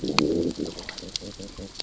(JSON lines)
{"label": "biophony, growl", "recorder": "SoundTrap 600 or HydroMoth"}